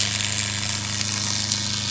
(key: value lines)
label: anthrophony, boat engine
recorder: SoundTrap 500